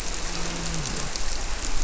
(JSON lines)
{"label": "biophony, grouper", "recorder": "SoundTrap 300"}